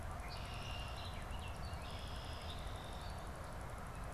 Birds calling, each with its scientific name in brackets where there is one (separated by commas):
Red-winged Blackbird (Agelaius phoeniceus)